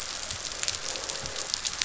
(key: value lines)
label: biophony, croak
recorder: SoundTrap 500